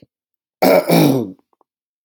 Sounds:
Throat clearing